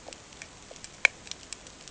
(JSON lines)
{"label": "ambient", "recorder": "HydroMoth"}